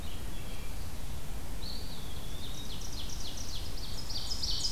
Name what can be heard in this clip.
Red-eyed Vireo, Eastern Wood-Pewee, Ovenbird